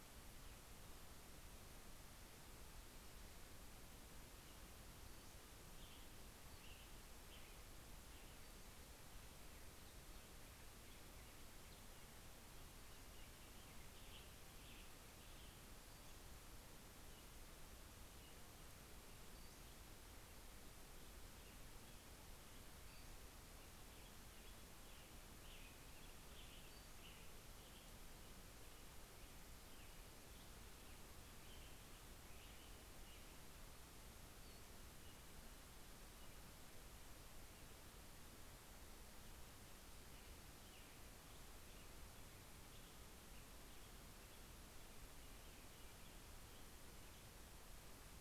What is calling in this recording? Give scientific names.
Empidonax difficilis, Piranga ludoviciana, Turdus migratorius